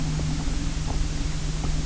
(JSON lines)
{"label": "anthrophony, boat engine", "recorder": "SoundTrap 300"}